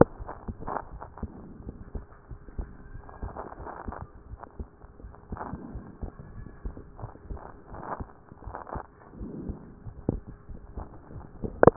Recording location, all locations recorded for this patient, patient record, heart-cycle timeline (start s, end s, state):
pulmonary valve (PV)
pulmonary valve (PV)+tricuspid valve (TV)+mitral valve (MV)
#Age: Child
#Sex: Female
#Height: 120.0 cm
#Weight: 24.4 kg
#Pregnancy status: False
#Murmur: Absent
#Murmur locations: nan
#Most audible location: nan
#Systolic murmur timing: nan
#Systolic murmur shape: nan
#Systolic murmur grading: nan
#Systolic murmur pitch: nan
#Systolic murmur quality: nan
#Diastolic murmur timing: nan
#Diastolic murmur shape: nan
#Diastolic murmur grading: nan
#Diastolic murmur pitch: nan
#Diastolic murmur quality: nan
#Outcome: Normal
#Campaign: 2014 screening campaign
0.00	1.55	unannotated
1.55	1.66	diastole
1.66	1.76	S1
1.76	1.94	systole
1.94	2.06	S2
2.06	2.30	diastole
2.30	2.40	S1
2.40	2.58	systole
2.58	2.66	S2
2.66	2.90	diastole
2.90	3.03	S1
3.03	3.23	systole
3.23	3.32	S2
3.32	3.60	diastole
3.60	3.73	S1
3.73	3.89	systole
3.89	4.02	S2
4.02	4.30	diastole
4.30	4.43	S1
4.43	4.59	systole
4.59	4.68	S2
4.68	5.01	diastole
5.01	5.14	S1
5.14	5.32	systole
5.32	5.42	S2
5.42	5.73	diastole
5.73	11.76	unannotated